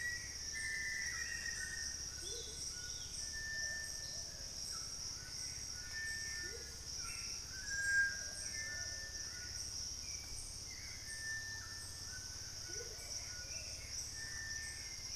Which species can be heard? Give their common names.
Black-faced Antthrush, Amazonian Motmot, Hauxwell's Thrush, White-throated Toucan, Cinereous Tinamou, Plumbeous Pigeon, Little Tinamou